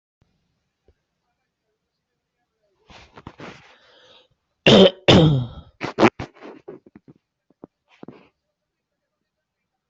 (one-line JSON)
{"expert_labels": [{"quality": "ok", "cough_type": "dry", "dyspnea": false, "wheezing": false, "stridor": false, "choking": false, "congestion": true, "nothing": false, "diagnosis": "upper respiratory tract infection", "severity": "mild"}], "age": 25, "gender": "male", "respiratory_condition": true, "fever_muscle_pain": false, "status": "symptomatic"}